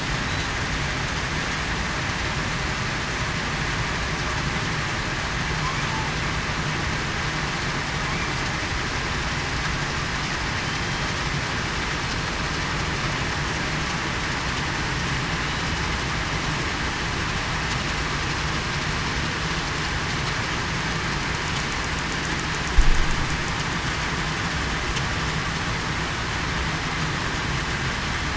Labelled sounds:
10.6	11.1	killer whale, southern resident, 3.0 to 3.2 kHz

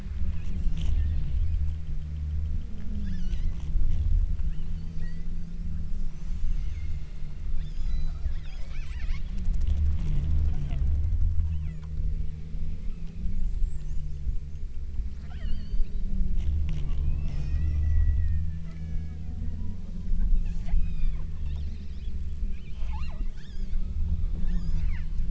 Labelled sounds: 0.3	0.7	killer whale, southern Alaska resident, 1.5 to 4.1 kHz
1.0	1.8	killer whale, southern Alaska resident, 1.6 to 5.1 kHz
3.0	3.7	killer whale, southern Alaska resident, 1.2 to 6.3 kHz
4.4	5.6	killer whale, southern Alaska resident, 1.4 to 5.9 kHz
6.5	7.3	killer whale, southern Alaska resident, 1.2 to 6.8 kHz
7.6	9.4	killer whale, southern Alaska resident, 0.87 to 8.0 kHz
11.3	12.0	killer whale, southern Alaska resident, 0.66 to 4.0 kHz
15.2	16.2	killer whale, southern Alaska resident, 0.57 to 6.7 kHz
17.0	19.5	killer whale, southern Alaska resident, 0.85 to 8.0 kHz
20.4	22.3	killer whale, southern Alaska resident, 0.81 to 8.0 kHz
22.7	24.1	killer whale, southern Alaska resident, 0.36 to 8.0 kHz
24.4	25.2	killer whale, southern Alaska resident, 0.89 to 8.0 kHz

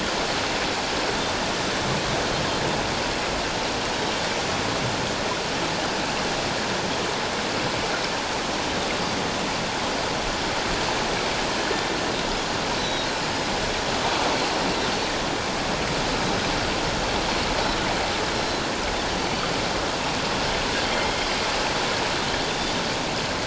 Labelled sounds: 12.8	13.1	Pacific white-sided dolphin, 3.7 to 6.1 kHz
18.3	18.6	Pacific white-sided dolphin, 5.4 to 5.6 kHz
20.9	21.2	Pacific white-sided dolphin, 2.1 to 2.2 kHz

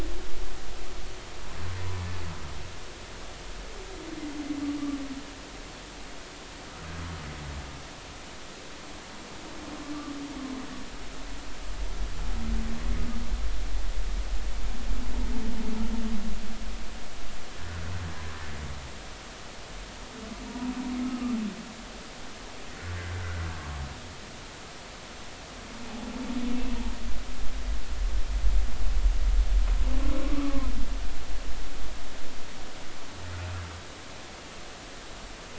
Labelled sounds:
20.5	21.4	humpback whale, 0.90 to 1.4 kHz
30.2	30.7	humpback whale, 0.96 to 1.4 kHz

